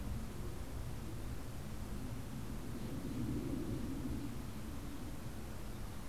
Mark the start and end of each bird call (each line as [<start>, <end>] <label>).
[1.42, 6.02] Steller's Jay (Cyanocitta stelleri)